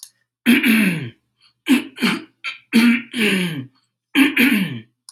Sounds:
Throat clearing